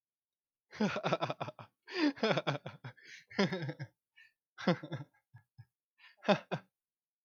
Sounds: Laughter